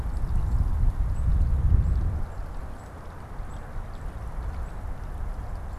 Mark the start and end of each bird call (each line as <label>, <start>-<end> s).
unidentified bird, 0.0-5.8 s